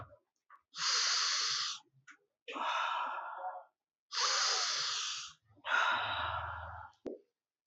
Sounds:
Sniff